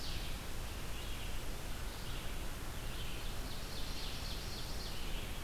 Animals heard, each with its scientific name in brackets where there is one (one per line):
Red-eyed Vireo (Vireo olivaceus)
Ovenbird (Seiurus aurocapilla)